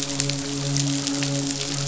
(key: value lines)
label: biophony, midshipman
recorder: SoundTrap 500